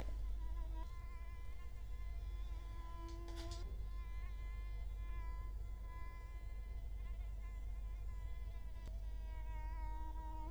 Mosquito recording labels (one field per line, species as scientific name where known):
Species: Culex quinquefasciatus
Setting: cup